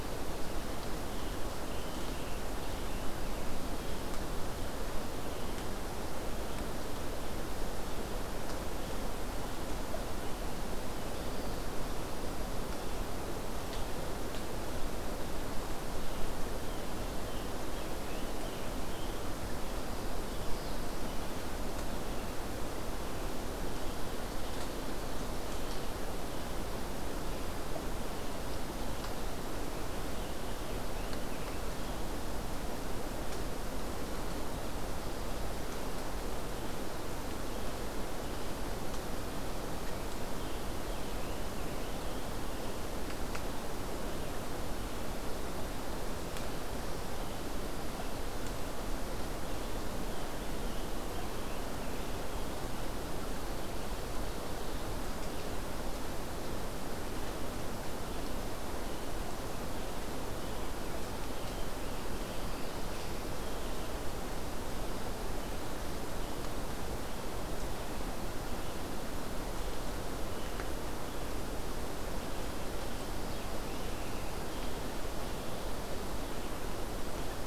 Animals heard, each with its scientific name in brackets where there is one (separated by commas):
Scarlet Tanager (Piranga olivacea)